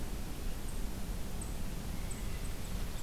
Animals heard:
forest ambience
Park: Marsh-Billings-Rockefeller National Historical Park